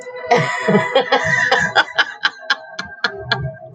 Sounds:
Laughter